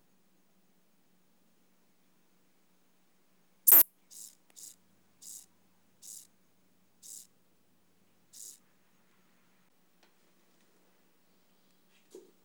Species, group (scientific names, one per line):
Ephippiger terrestris
Orthoptera